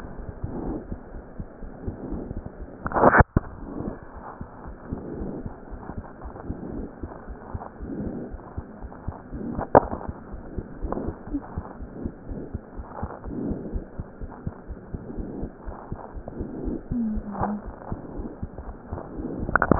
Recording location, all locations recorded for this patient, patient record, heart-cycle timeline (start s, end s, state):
pulmonary valve (PV)
aortic valve (AV)+pulmonary valve (PV)+tricuspid valve (TV)+mitral valve (MV)
#Age: Child
#Sex: Female
#Height: 80.0 cm
#Weight: 10.7 kg
#Pregnancy status: False
#Murmur: Absent
#Murmur locations: nan
#Most audible location: nan
#Systolic murmur timing: nan
#Systolic murmur shape: nan
#Systolic murmur grading: nan
#Systolic murmur pitch: nan
#Systolic murmur quality: nan
#Diastolic murmur timing: nan
#Diastolic murmur shape: nan
#Diastolic murmur grading: nan
#Diastolic murmur pitch: nan
#Diastolic murmur quality: nan
#Outcome: Abnormal
#Campaign: 2015 screening campaign
0.00	10.56	unannotated
10.56	10.68	S2
10.68	10.80	diastole
10.80	10.94	S1
10.94	11.04	systole
11.04	11.16	S2
11.16	11.32	diastole
11.32	11.44	S1
11.44	11.56	systole
11.56	11.66	S2
11.66	11.82	diastole
11.82	11.90	S1
11.90	12.02	systole
12.02	12.14	S2
12.14	12.28	diastole
12.28	12.42	S1
12.42	12.52	systole
12.52	12.62	S2
12.62	12.78	diastole
12.78	12.86	S1
12.86	13.00	systole
13.00	13.12	S2
13.12	13.26	diastole
13.26	13.36	S1
13.36	13.44	systole
13.44	13.58	S2
13.58	13.70	diastole
13.70	13.86	S1
13.86	14.00	systole
14.00	14.08	S2
14.08	14.22	diastole
14.22	14.30	S1
14.30	14.44	systole
14.44	14.54	S2
14.54	14.70	diastole
14.70	14.78	S1
14.78	14.90	systole
14.90	15.02	S2
15.02	15.14	diastole
15.14	15.28	S1
15.28	15.40	systole
15.40	15.50	S2
15.50	15.64	diastole
15.64	15.74	S1
15.74	15.90	systole
15.90	16.00	S2
16.00	16.16	diastole
16.16	16.28	S1
16.28	16.38	systole
16.38	16.48	S2
16.48	16.62	diastole
16.62	16.74	S1
16.74	16.89	systole
16.89	16.97	S2
16.97	17.13	diastole
17.13	19.79	unannotated